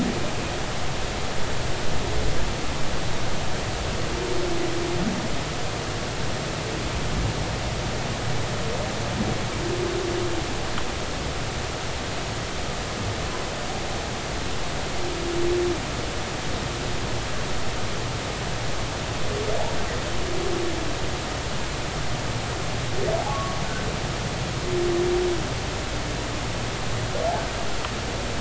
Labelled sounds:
23.3	23.6	humpback whale, 1.1 to 1.2 kHz

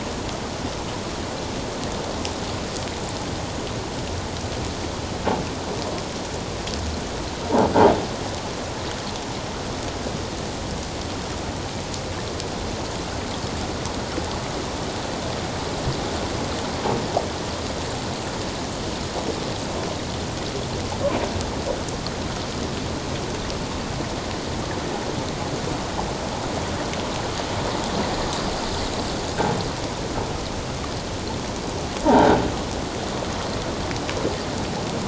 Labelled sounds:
32.0	32.4	croaking sound likely from a nearby submerged object, 0.78 to 1.6 kHz

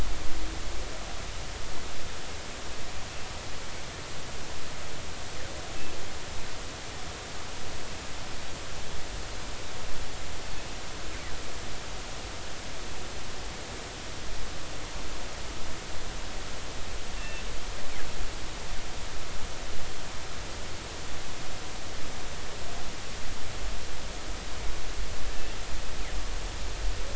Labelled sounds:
17.2	17.4	killer whale, northern resident, G clan, call N24ii, 2.6 to 2.8 kHz

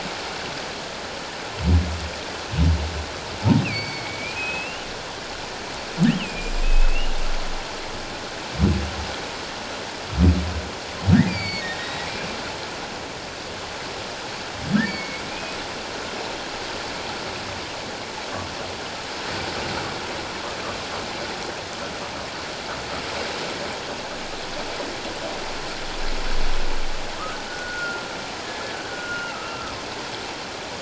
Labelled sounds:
3.6	4.9	humpback whale, 2.2 to 4.8 kHz
6.1	7.1	humpback whale, 2.3 to 3.3 kHz
11.3	12.1	humpback whale, 2.1 to 4.9 kHz
14.8	15.6	humpback whale, 2.1 to 2.6 kHz
27.5	29.7	humpback whale, 1.2 to 1.8 kHz

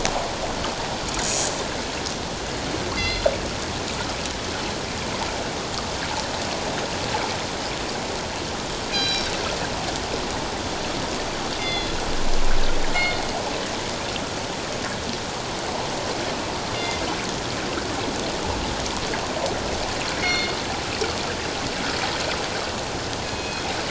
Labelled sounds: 1.1	1.4	killer whale, northern resident, 6.6 to 6.9 kHz
2.9	3.3	killer whale, northern resident, G clan, call N24ii, 2.0 to 4.9 kHz
8.9	9.3	killer whale, northern resident, G clan, call N24ii, 2.3 to 5.7 kHz
11.6	12.0	killer whale, northern resident, G clan, call N24ii, 2.0 to 4.2 kHz
16.7	17.0	killer whale, northern resident, G clan, call N24ii, 2.0 to 5.0 kHz
20.2	20.5	killer whale, northern resident, G clan, call N24ii, 2.1 to 4.4 kHz
23.2	23.6	killer whale, northern resident, G clan, call N24ii, 2.4 to 2.6 kHz

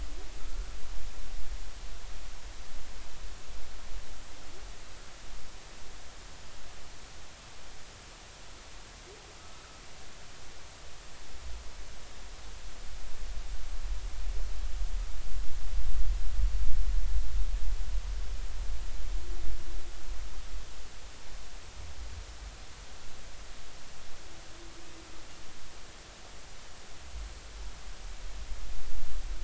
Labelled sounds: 0.4	0.6	humpback whale, 1.2 to 1.4 kHz
9.4	9.6	humpback whale, 1.2 to 1.3 kHz

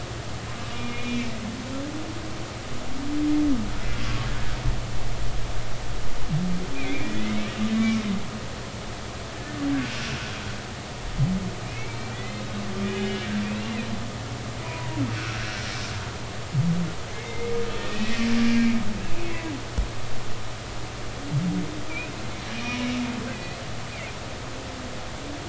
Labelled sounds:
0.7	1.3	humpback whale, 2.3 to 2.5 kHz
4.0	4.3	humpback whale, 1.1 to 1.2 kHz
6.7	8.0	humpback whale, 1.1 to 2.5 kHz
11.6	13.3	humpback whale, 1.6 to 3.9 kHz
14.6	15.6	humpback whale, 0.90 to 1.7 kHz
17.1	18.8	humpback whale, 1.8 to 2.6 kHz
23.3	23.6	humpback whale, 1.9 to 2.6 kHz

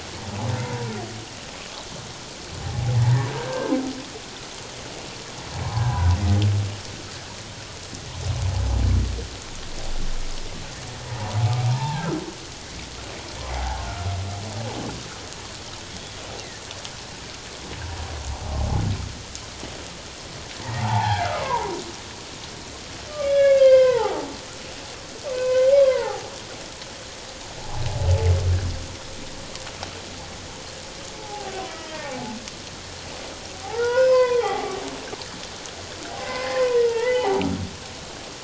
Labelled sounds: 0.6	0.9	humpback whale, 0.91 to 1.0 kHz
2.6	3.0	humpback whale, 0.78 to 0.91 kHz
3.3	3.7	humpback whale, 1.5 to 1.7 kHz
5.6	6.1	humpback whale, 0.78 to 1.1 kHz
11.7	12.1	humpback whale, 0.78 to 1.0 kHz
13.5	13.8	humpback whale, 0.78 to 0.94 kHz
15.9	16.1	humpback whale, 3.2 to 3.5 kHz
18.3	18.6	humpback whale, 0.78 to 1.0 kHz
20.8	21.7	humpback whale, 0.78 to 1.8 kHz
23.3	24.2	humpback whale, 0.78 to 3.5 kHz
25.3	26.3	humpback whale, 0.78 to 2.7 kHz
31.2	32.4	humpback whale, 0.78 to 2.0 kHz
33.6	34.8	humpback whale, 0.78 to 5.2 kHz
36.2	37.4	humpback whale, 0.78 to 3.1 kHz

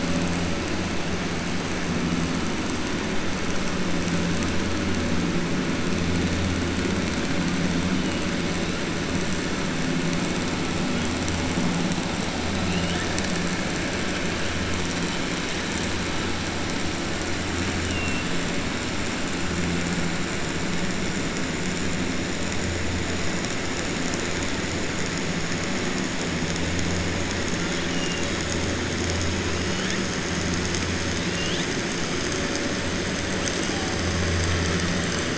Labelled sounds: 17.8	18.3	killer whale, southern resident, 1.8 to 3.5 kHz
27.9	28.4	killer whale, southern resident, 2.7 to 3.9 kHz
31.2	31.7	killer whale, southern resident, 2.7 to 4.5 kHz

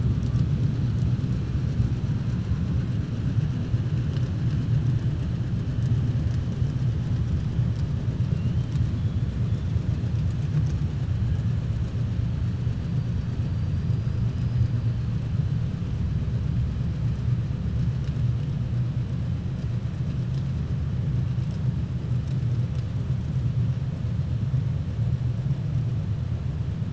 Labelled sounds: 13.5	14.2	killer whale, 3.7 to 5.0 kHz

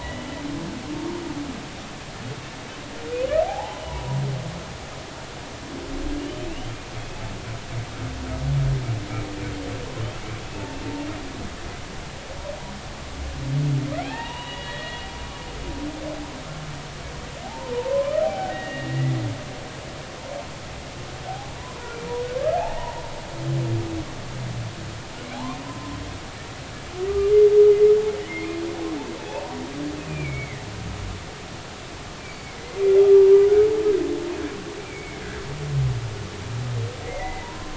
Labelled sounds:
3.4	4.2	humpback whale, 0.80 to 1.1 kHz
6.2	6.8	humpback whale, 2.5 to 3.2 kHz
13.9	15.1	humpback whale, 0.80 to 3.9 kHz
17.4	19.1	humpback whale, 0.80 to 2.9 kHz
21.3	21.9	humpback whale, 0.80 to 1.1 kHz
22.6	23.0	humpback whale, 0.80 to 1.0 kHz
25.3	25.9	humpback whale, 0.80 to 1.2 kHz
28.2	29.6	humpback whale, 0.80 to 2.5 kHz
30.0	30.6	humpback whale, 1.8 to 2.7 kHz
33.0	33.3	humpback whale, 1.2 to 1.3 kHz
34.9	35.2	humpback whale, 2.1 to 2.4 kHz
37.1	37.7	humpback whale, 0.90 to 2.2 kHz

